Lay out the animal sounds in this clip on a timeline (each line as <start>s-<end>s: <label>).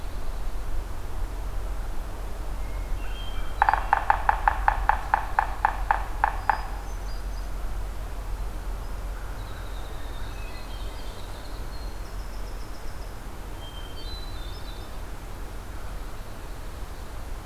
2.8s-4.2s: Hermit Thrush (Catharus guttatus)
3.4s-6.7s: Yellow-bellied Sapsucker (Sphyrapicus varius)
6.2s-7.7s: Hermit Thrush (Catharus guttatus)
9.0s-10.5s: American Crow (Corvus brachyrhynchos)
9.1s-13.4s: Winter Wren (Troglodytes hiemalis)
9.9s-11.0s: Hermit Thrush (Catharus guttatus)
13.4s-15.0s: Hermit Thrush (Catharus guttatus)